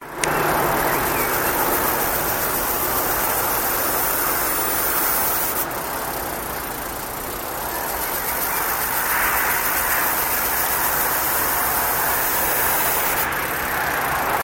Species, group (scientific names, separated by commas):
Dimissalna dimissa, Cicadidae